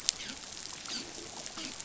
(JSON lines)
{"label": "biophony, dolphin", "recorder": "SoundTrap 500"}